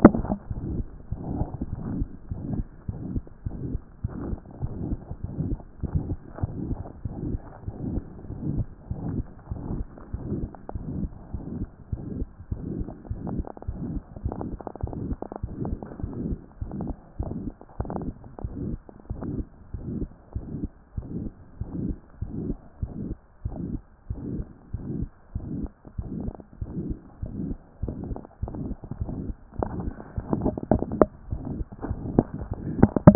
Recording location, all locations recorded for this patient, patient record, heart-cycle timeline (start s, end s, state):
mitral valve (MV)
aortic valve (AV)+pulmonary valve (PV)+tricuspid valve (TV)+mitral valve (MV)
#Age: Child
#Sex: Male
#Height: 126.0 cm
#Weight: 30.7 kg
#Pregnancy status: False
#Murmur: Present
#Murmur locations: aortic valve (AV)+mitral valve (MV)+pulmonary valve (PV)+tricuspid valve (TV)
#Most audible location: pulmonary valve (PV)
#Systolic murmur timing: Holosystolic
#Systolic murmur shape: Plateau
#Systolic murmur grading: III/VI or higher
#Systolic murmur pitch: Medium
#Systolic murmur quality: Harsh
#Diastolic murmur timing: nan
#Diastolic murmur shape: nan
#Diastolic murmur grading: nan
#Diastolic murmur pitch: nan
#Diastolic murmur quality: nan
#Outcome: Abnormal
#Campaign: 2014 screening campaign
0.00	16.04	unannotated
16.04	16.12	S1
16.12	16.28	systole
16.28	16.38	S2
16.38	16.62	diastole
16.62	16.72	S1
16.72	16.84	systole
16.84	16.94	S2
16.94	17.20	diastole
17.20	17.32	S1
17.32	17.44	systole
17.44	17.52	S2
17.52	17.80	diastole
17.80	17.90	S1
17.90	18.04	systole
18.04	18.14	S2
18.14	18.42	diastole
18.42	18.52	S1
18.52	18.66	systole
18.66	18.78	S2
18.78	19.10	diastole
19.10	19.20	S1
19.20	19.34	systole
19.34	19.44	S2
19.44	19.74	diastole
19.74	19.82	S1
19.82	19.96	systole
19.96	20.08	S2
20.08	20.36	diastole
20.36	20.44	S1
20.44	20.60	systole
20.60	20.68	S2
20.68	20.96	diastole
20.96	21.06	S1
21.06	21.18	systole
21.18	21.30	S2
21.30	21.60	diastole
21.60	21.68	S1
21.68	21.82	systole
21.82	21.96	S2
21.96	22.22	diastole
22.22	22.32	S1
22.32	22.46	systole
22.46	22.56	S2
22.56	22.82	diastole
22.82	22.92	S1
22.92	23.04	systole
23.04	23.16	S2
23.16	23.44	diastole
23.44	23.56	S1
23.56	23.70	systole
23.70	23.80	S2
23.80	24.10	diastole
24.10	24.20	S1
24.20	24.34	systole
24.34	24.44	S2
24.44	24.74	diastole
24.74	24.84	S1
24.84	24.96	systole
24.96	25.08	S2
25.08	25.36	diastole
25.36	25.46	S1
25.46	25.58	systole
25.58	25.68	S2
25.68	25.98	diastole
25.98	26.08	S1
26.08	26.22	systole
26.22	26.32	S2
26.32	26.62	diastole
26.62	26.70	S1
26.70	26.86	systole
26.86	26.96	S2
26.96	27.22	diastole
27.22	27.32	S1
27.32	27.44	systole
27.44	27.56	S2
27.56	27.82	diastole
27.82	27.94	S1
27.94	28.08	systole
28.08	28.18	S2
28.18	28.42	diastole
28.42	28.54	S1
28.54	28.66	systole
28.66	28.76	S2
28.76	29.00	diastole
29.00	29.12	S1
29.12	29.26	systole
29.26	29.34	S2
29.34	29.58	diastole
29.58	29.70	S1
29.70	29.82	systole
29.82	29.94	S2
29.94	30.18	diastole
30.18	33.15	unannotated